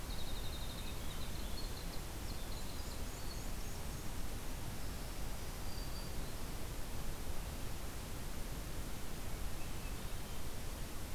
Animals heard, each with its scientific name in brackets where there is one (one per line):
Black-and-white Warbler (Mniotilta varia)
Winter Wren (Troglodytes hiemalis)
Swainson's Thrush (Catharus ustulatus)
Black-throated Green Warbler (Setophaga virens)